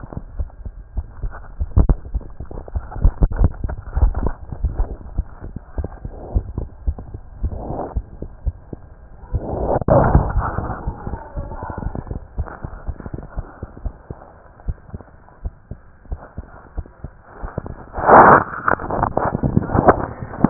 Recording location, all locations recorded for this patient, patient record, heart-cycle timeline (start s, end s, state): aortic valve (AV)
aortic valve (AV)
#Age: Child
#Sex: Female
#Height: 70.0 cm
#Weight: 9.0 kg
#Pregnancy status: False
#Murmur: Absent
#Murmur locations: nan
#Most audible location: nan
#Systolic murmur timing: nan
#Systolic murmur shape: nan
#Systolic murmur grading: nan
#Systolic murmur pitch: nan
#Systolic murmur quality: nan
#Diastolic murmur timing: nan
#Diastolic murmur shape: nan
#Diastolic murmur grading: nan
#Diastolic murmur pitch: nan
#Diastolic murmur quality: nan
#Outcome: Normal
#Campaign: 2015 screening campaign
0.00	12.10	unannotated
12.10	12.21	S2
12.21	12.36	diastole
12.36	12.48	S1
12.48	12.62	systole
12.62	12.71	S2
12.71	12.85	diastole
12.85	12.96	S1
12.96	13.11	systole
13.11	13.20	S2
13.20	13.35	diastole
13.35	13.44	S1
13.44	13.61	systole
13.61	13.68	S2
13.68	13.81	diastole
13.81	13.96	S1
13.96	14.08	systole
14.08	14.19	S2
14.19	14.62	diastole
14.62	14.76	S1
14.76	14.90	systole
14.90	15.02	S2
15.02	15.39	diastole
15.39	15.52	S1
15.52	15.66	systole
15.66	15.77	S2
15.77	16.09	diastole
16.09	16.22	S1
16.22	16.35	systole
16.35	16.46	S2
16.46	16.73	diastole
16.73	16.85	S1
16.85	17.00	systole
17.00	17.10	S2
17.10	17.41	diastole
17.41	17.53	S1
17.53	17.66	systole
17.66	17.76	S2
17.76	17.93	diastole
17.93	20.50	unannotated